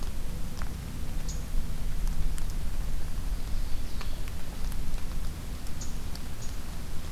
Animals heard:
unidentified call, Ovenbird (Seiurus aurocapilla)

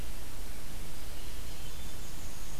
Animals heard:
Black-and-white Warbler (Mniotilta varia), Winter Wren (Troglodytes hiemalis)

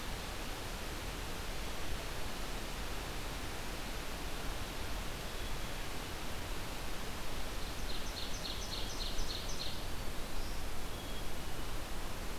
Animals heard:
Black-throated Green Warbler (Setophaga virens), Black-capped Chickadee (Poecile atricapillus), Ovenbird (Seiurus aurocapilla)

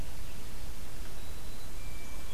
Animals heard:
Black-throated Green Warbler (Setophaga virens), Hermit Thrush (Catharus guttatus)

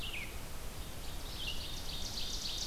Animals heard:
Red-eyed Vireo (Vireo olivaceus), Ovenbird (Seiurus aurocapilla)

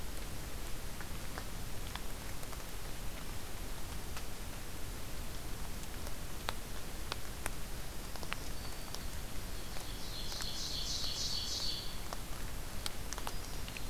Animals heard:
Black-throated Green Warbler (Setophaga virens), Ovenbird (Seiurus aurocapilla)

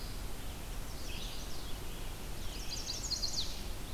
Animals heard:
Red-eyed Vireo (Vireo olivaceus), Chestnut-sided Warbler (Setophaga pensylvanica)

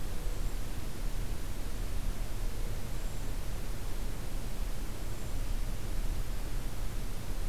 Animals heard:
Hermit Thrush (Catharus guttatus)

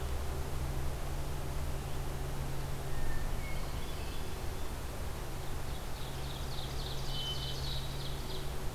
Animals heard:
Ovenbird (Seiurus aurocapilla), Hermit Thrush (Catharus guttatus)

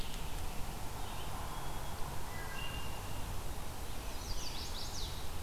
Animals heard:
Black-capped Chickadee (Poecile atricapillus), Veery (Catharus fuscescens), Chestnut-sided Warbler (Setophaga pensylvanica), Wood Thrush (Hylocichla mustelina)

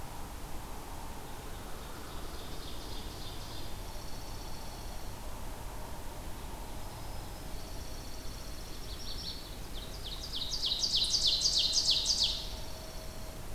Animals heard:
Chestnut-sided Warbler (Setophaga pensylvanica), Ovenbird (Seiurus aurocapilla), Black-throated Green Warbler (Setophaga virens), Dark-eyed Junco (Junco hyemalis)

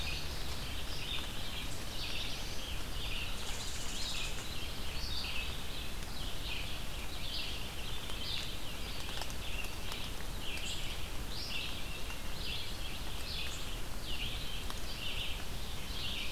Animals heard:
Black-throated Blue Warbler (Setophaga caerulescens), Indigo Bunting (Passerina cyanea), unknown mammal, Red-eyed Vireo (Vireo olivaceus)

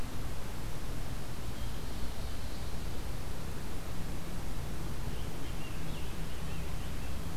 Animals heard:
Ovenbird (Seiurus aurocapilla), Scarlet Tanager (Piranga olivacea)

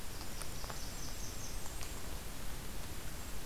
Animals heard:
Golden-crowned Kinglet (Regulus satrapa), Blackburnian Warbler (Setophaga fusca)

